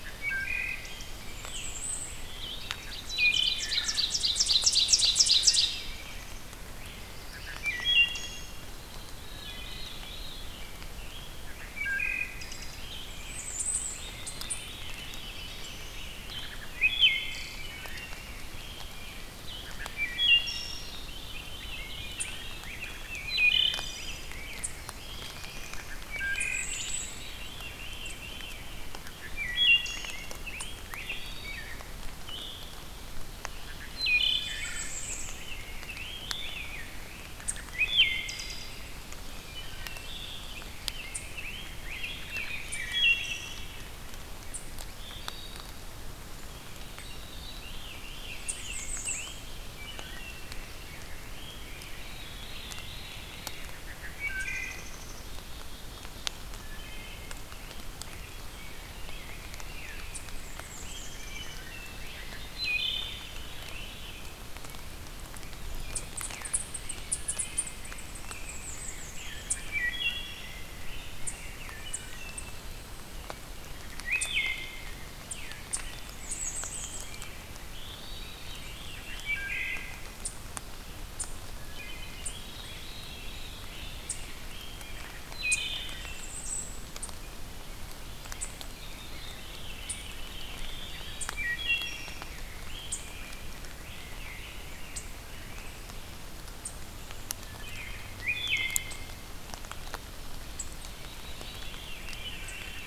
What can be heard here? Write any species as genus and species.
Hylocichla mustelina, Setophaga castanea, Seiurus aurocapilla, Setophaga caerulescens, Catharus fuscescens, Pheucticus ludovicianus, Tamias striatus, Poecile atricapillus